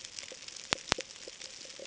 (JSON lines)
{"label": "ambient", "recorder": "HydroMoth"}